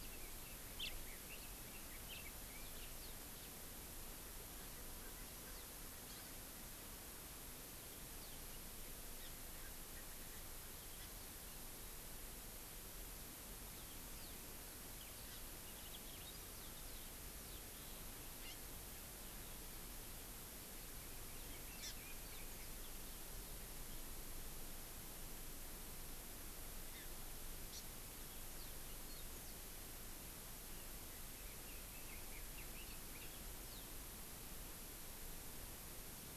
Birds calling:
Hawaii Amakihi (Chlorodrepanis virens), Red-billed Leiothrix (Leiothrix lutea)

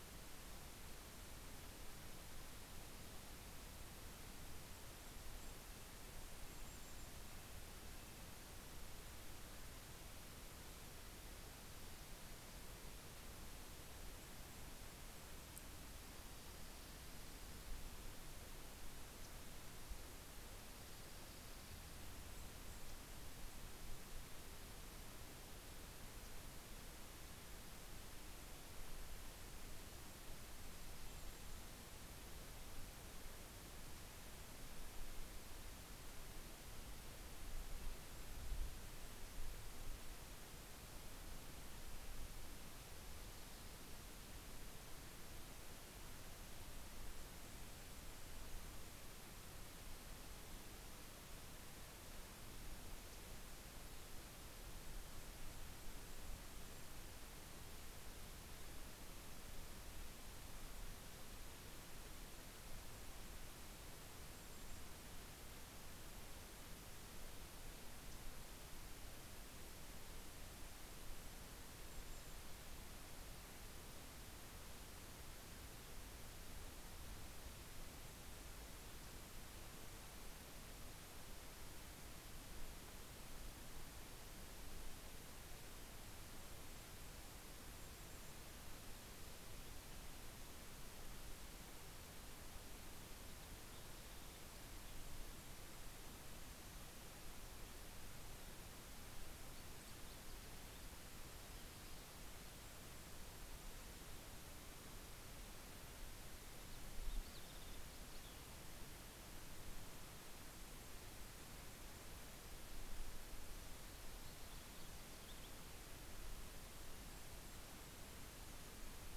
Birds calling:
Dark-eyed Junco (Junco hyemalis), Lincoln's Sparrow (Melospiza lincolnii), Golden-crowned Kinglet (Regulus satrapa)

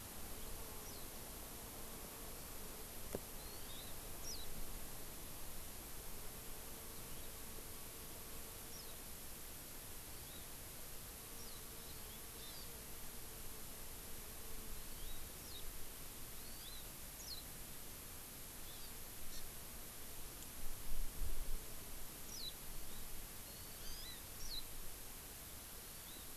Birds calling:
Eurasian Skylark (Alauda arvensis), Hawaii Amakihi (Chlorodrepanis virens), Warbling White-eye (Zosterops japonicus)

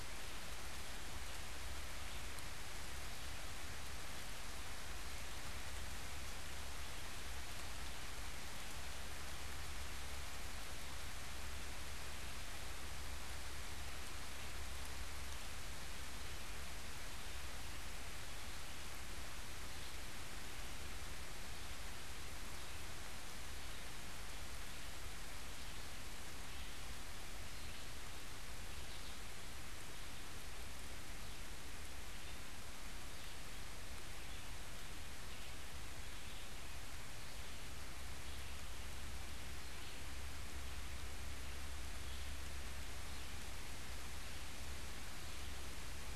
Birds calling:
Red-eyed Vireo (Vireo olivaceus)

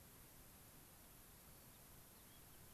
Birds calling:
unidentified bird

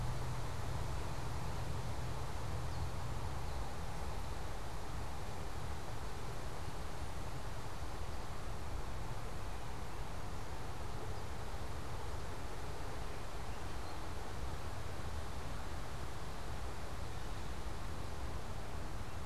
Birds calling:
unidentified bird, American Robin (Turdus migratorius)

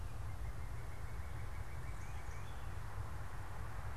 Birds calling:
Northern Cardinal (Cardinalis cardinalis)

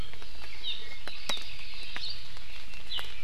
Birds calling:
Hawaii Amakihi (Chlorodrepanis virens), Apapane (Himatione sanguinea)

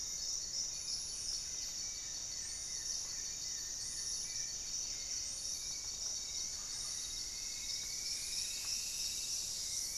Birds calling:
Hauxwell's Thrush (Turdus hauxwelli), Paradise Tanager (Tangara chilensis), Striped Woodcreeper (Xiphorhynchus obsoletus), Goeldi's Antbird (Akletos goeldii), Buff-breasted Wren (Cantorchilus leucotis), Gray-fronted Dove (Leptotila rufaxilla)

